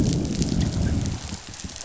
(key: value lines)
label: biophony, growl
recorder: SoundTrap 500